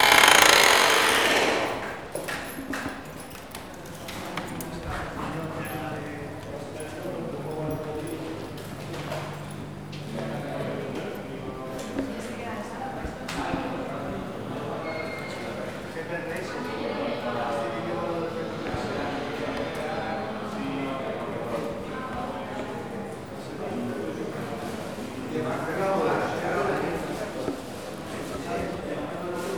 What are the people doing?
talking